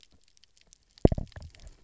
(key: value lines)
label: biophony, double pulse
recorder: SoundTrap 300